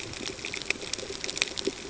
{"label": "ambient", "recorder": "HydroMoth"}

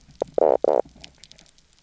{"label": "biophony, knock croak", "recorder": "SoundTrap 300"}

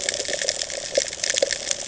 {"label": "ambient", "recorder": "HydroMoth"}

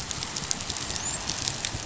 {"label": "biophony, dolphin", "recorder": "SoundTrap 500"}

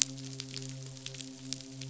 {"label": "biophony, midshipman", "recorder": "SoundTrap 500"}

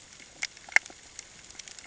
{"label": "ambient", "recorder": "HydroMoth"}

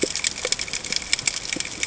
{"label": "ambient", "recorder": "HydroMoth"}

